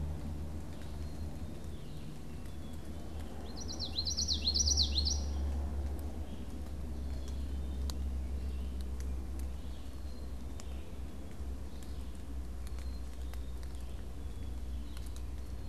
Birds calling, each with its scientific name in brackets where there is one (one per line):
Red-eyed Vireo (Vireo olivaceus)
Common Yellowthroat (Geothlypis trichas)
Black-capped Chickadee (Poecile atricapillus)